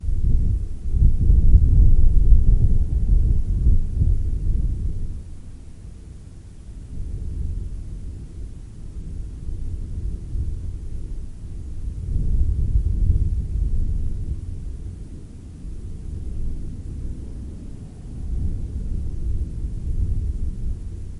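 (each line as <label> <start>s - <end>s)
Wind rushing over an open chimney with faint thunder in the background. 0.0s - 5.0s
Wind blowing. 5.1s - 12.0s
Distant thunder rumbles. 12.1s - 14.5s
Wind blowing. 14.6s - 18.2s
Thunder rumbling in the distance. 18.2s - 20.9s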